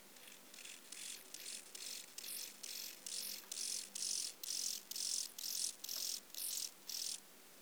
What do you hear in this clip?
Chorthippus mollis, an orthopteran